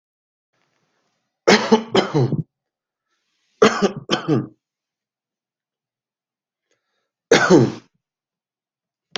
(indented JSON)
{
  "expert_labels": [
    {
      "quality": "good",
      "cough_type": "dry",
      "dyspnea": false,
      "wheezing": false,
      "stridor": false,
      "choking": false,
      "congestion": false,
      "nothing": true,
      "diagnosis": "COVID-19",
      "severity": "mild"
    }
  ],
  "age": 55,
  "gender": "male",
  "respiratory_condition": false,
  "fever_muscle_pain": false,
  "status": "COVID-19"
}